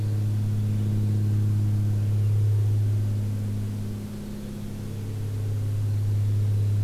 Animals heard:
forest ambience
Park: Marsh-Billings-Rockefeller National Historical Park